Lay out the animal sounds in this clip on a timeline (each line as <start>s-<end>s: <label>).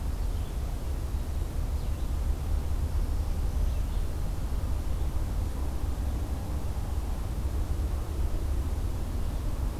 0.0s-5.6s: Red-eyed Vireo (Vireo olivaceus)
2.8s-4.6s: Black-throated Green Warbler (Setophaga virens)